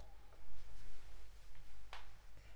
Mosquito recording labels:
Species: Anopheles arabiensis; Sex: female; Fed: unfed; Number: one; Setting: cup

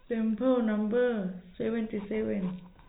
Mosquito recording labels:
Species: no mosquito; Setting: cup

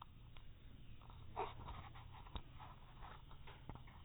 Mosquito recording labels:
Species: no mosquito; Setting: cup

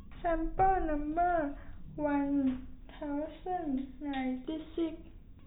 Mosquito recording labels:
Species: no mosquito; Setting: cup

